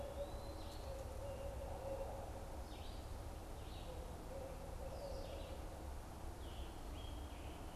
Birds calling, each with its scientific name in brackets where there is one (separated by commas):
Eastern Wood-Pewee (Contopus virens), Red-eyed Vireo (Vireo olivaceus), Barred Owl (Strix varia), Scarlet Tanager (Piranga olivacea)